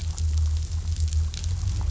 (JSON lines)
{"label": "anthrophony, boat engine", "recorder": "SoundTrap 500"}